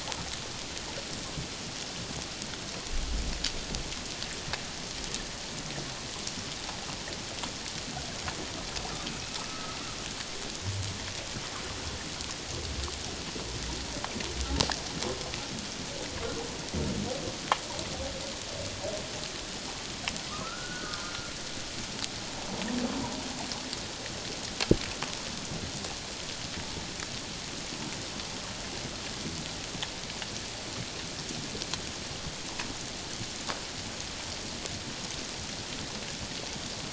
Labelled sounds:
9.5	9.8	humpback whale, 1.1 to 1.3 kHz
20.3	21.1	humpback whale, 0.97 to 1.7 kHz

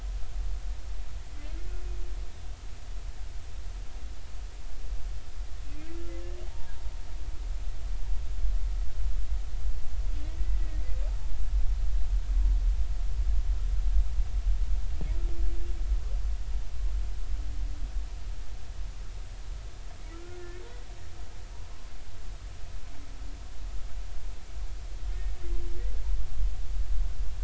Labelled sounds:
6.5	6.8	humpback whale, 0.80 to 0.96 kHz
20.1	20.5	humpback whale, 1.3 to 1.5 kHz

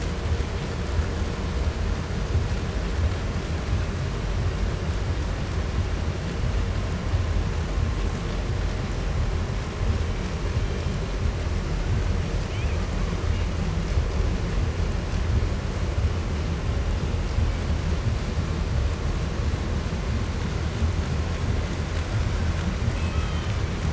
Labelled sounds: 9.4	11.3	killer whale, 0.75 to 3.3 kHz
12.3	13.5	killer whale, 0.67 to 5.1 kHz
17.3	17.8	killer whale, 2.0 to 3.8 kHz
22.0	22.6	killer whale, 0.96 to 6.9 kHz
22.8	23.9	killer whale, Bigg's (transient), 0.75 to 4.2 kHz

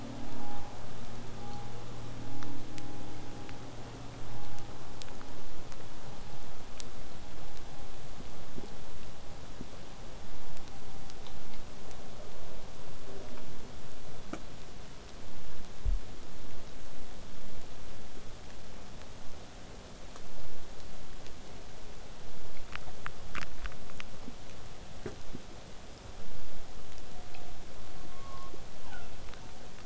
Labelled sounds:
28.1	29.7	killer whale, southern resident, J pod, call S07, 0.50 to 4.6 kHz

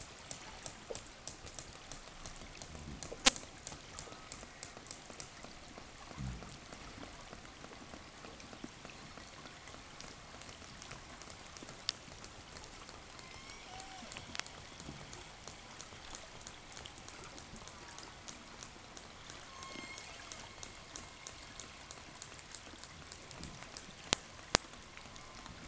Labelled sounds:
12.6	15.4	killer whale, southern resident, 0 to 8.0 kHz
17.3	20.8	killer whale, southern resident, 0 to 8.0 kHz
24.8	25.6	killer whale, southern resident, call S04, 0.74 to 1.5 kHz

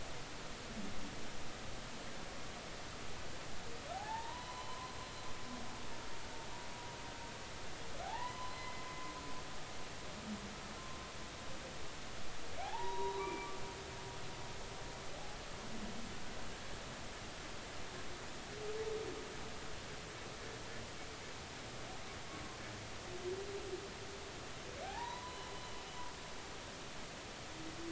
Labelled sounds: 3.9	4.9	humpback whale, 0.80 to 3.1 kHz
8.0	8.8	humpback whale, 0.80 to 3.1 kHz
12.6	13.5	humpback whale, 0.80 to 3.9 kHz
24.8	25.5	humpback whale, 0.80 to 4.1 kHz

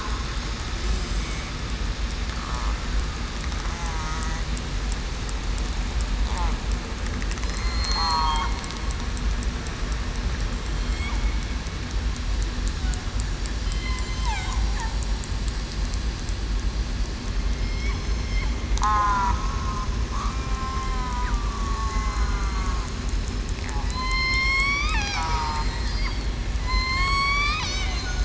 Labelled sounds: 3.8	4.2	killer whale, southern resident, 0.91 to 1.0 kHz
7.4	8.4	killer whale, southern resident, 1.1 to 4.3 kHz
14.1	14.6	killer whale, southern resident, 0.73 to 1.1 kHz
17.5	18.0	killer whale, southern resident, 2.1 to 2.3 kHz
18.8	19.3	killer whale, southern resident, 1.1 to 1.7 kHz
20.1	20.5	killer whale, southern resident, 1.1 to 1.3 kHz
20.9	21.4	killer whale, southern resident, 0.91 to 1.1 kHz
21.7	22.2	killer whale, southern resident, 0.80 to 5.2 kHz
23.8	26.3	killer whale, southern resident, 0.89 to 5.4 kHz
26.6	28.2	killer whale, southern resident, 0.98 to 8.0 kHz

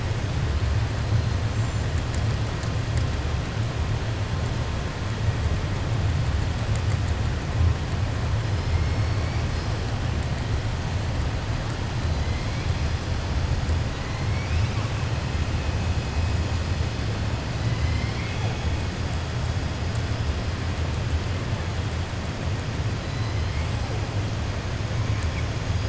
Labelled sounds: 14.2	14.9	killer whale, 1.3 to 3.8 kHz
17.6	18.6	killer whale, 0.50 to 5.3 kHz
23.0	23.7	killer whale, 2.1 to 4.2 kHz

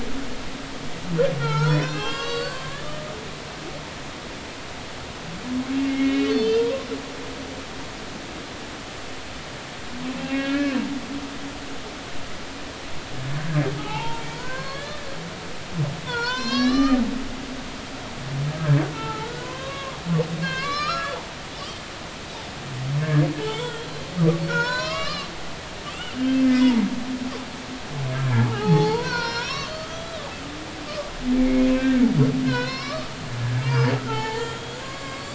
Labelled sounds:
1.4	2.8	humpback whale, 0.83 to 6.0 kHz
5.9	6.9	humpback whale, 0.90 to 4.5 kHz
10.2	10.8	humpback whale, 1.6 to 3.2 kHz
13.8	14.1	humpback whale, 2.5 to 2.8 kHz
14.4	15.2	humpback whale, 0.80 to 4.5 kHz
16.0	17.0	humpback whale, 0.86 to 6.6 kHz
18.9	21.2	humpback whale, 0.83 to 5.6 kHz
21.8	23.9	humpback whale, 0.83 to 7.6 kHz
24.5	25.3	humpback whale, 0.90 to 5.8 kHz
25.9	26.8	humpback whale, 1.9 to 5.6 kHz
28.2	30.1	humpback whale, 0.80 to 5.8 kHz
31.4	32.0	humpback whale, 1.5 to 2.7 kHz
32.5	33.1	humpback whale, 0.93 to 5.3 kHz
33.6	35.3	humpback whale, 0.80 to 6.9 kHz

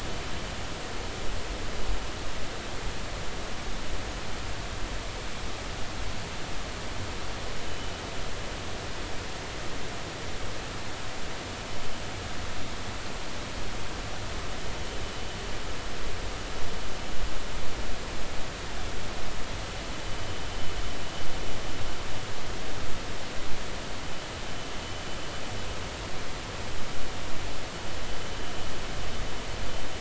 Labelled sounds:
7.7	7.9	vessel noise, 2.9 to 3.0 kHz

